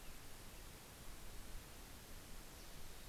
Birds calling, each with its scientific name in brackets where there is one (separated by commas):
Mountain Chickadee (Poecile gambeli), American Robin (Turdus migratorius)